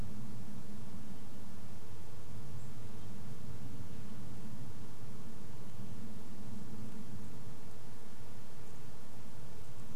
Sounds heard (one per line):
unidentified bird chip note
Red-breasted Nuthatch song
airplane